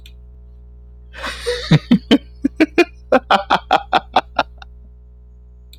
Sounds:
Laughter